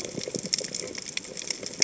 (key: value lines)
label: biophony, chatter
recorder: HydroMoth